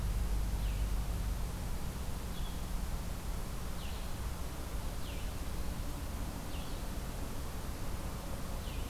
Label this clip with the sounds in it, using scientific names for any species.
Vireo solitarius